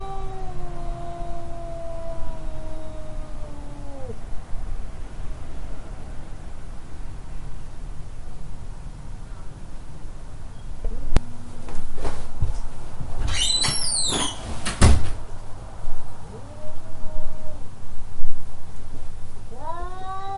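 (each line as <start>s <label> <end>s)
0.0s Cat howling continuously outside a window with a decreasing pitch. 4.2s
0.0s Continuous white noise in the background. 20.4s
10.8s A cat howls continuously outside a window. 11.1s
11.1s An audio artifact click caused by a recording cut. 11.2s
11.7s Soft rustling sound of cloth rubbing. 15.1s
13.1s Jarring door creaking continuously with pitch increasing and then decreasing. 14.5s
14.5s Door clicking non-rhythmically into its frame indoors. 15.2s
16.1s A cat is continuously howling outside a window. 17.6s
19.4s A cat howls continuously outside a window, increasing in pitch. 20.4s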